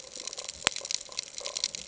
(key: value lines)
label: ambient
recorder: HydroMoth